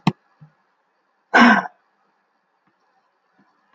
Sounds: Sigh